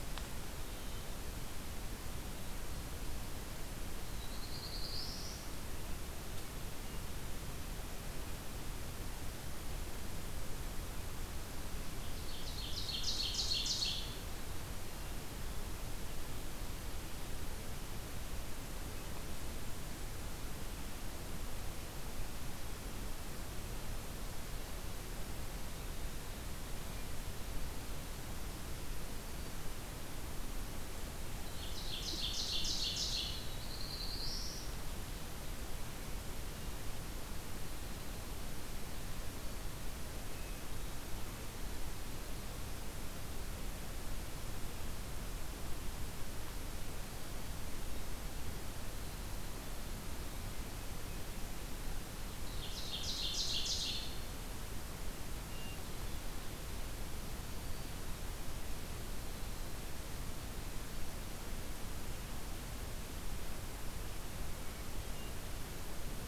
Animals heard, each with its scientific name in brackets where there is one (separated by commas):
Hermit Thrush (Catharus guttatus), Ovenbird (Seiurus aurocapilla), Black-throated Blue Warbler (Setophaga caerulescens)